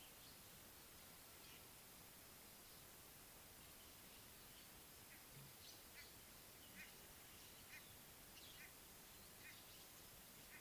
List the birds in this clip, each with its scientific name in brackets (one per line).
White-bellied Go-away-bird (Corythaixoides leucogaster)